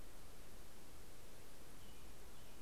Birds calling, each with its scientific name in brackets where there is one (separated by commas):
American Robin (Turdus migratorius)